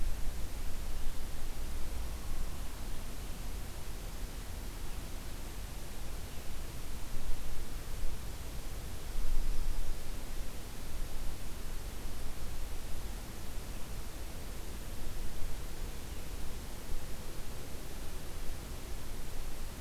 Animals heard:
forest ambience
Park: Acadia National Park